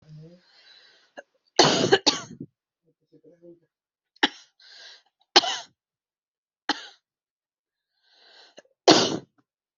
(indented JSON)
{
  "expert_labels": [
    {
      "quality": "ok",
      "cough_type": "dry",
      "dyspnea": true,
      "wheezing": false,
      "stridor": false,
      "choking": false,
      "congestion": false,
      "nothing": false,
      "diagnosis": "COVID-19",
      "severity": "mild"
    }
  ],
  "age": 30,
  "gender": "female",
  "respiratory_condition": false,
  "fever_muscle_pain": false,
  "status": "symptomatic"
}